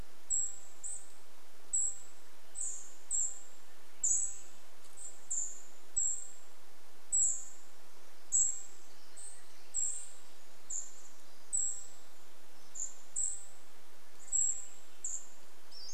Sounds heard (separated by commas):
Cedar Waxwing call, Pacific-slope Flycatcher call, Swainson's Thrush song, Pacific Wren song